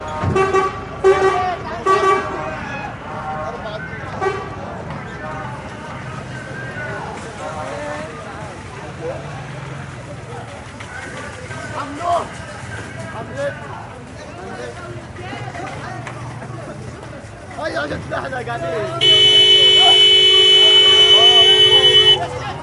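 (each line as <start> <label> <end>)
0.0 Continuous city ambience with indistinct, muffled chatter and movement. 22.6
0.2 A loud, clear car horn sounds repeatedly and rhythmically. 2.4
4.2 A car horn sounds loudly and briefly. 4.3
8.7 Muffled and distant sound of a bike traveling. 10.5
10.6 A quiet, high-pitched metallic rumbling of a moving cart. 13.6
10.6 Metallic sound. 13.6
11.9 A man yells clearly and briefly. 12.4
13.3 A man yells briefly and clearly. 13.6
17.6 A man is yelling loudly and continuously. 19.0
19.0 A car horn sounds loudly and continuously. 22.2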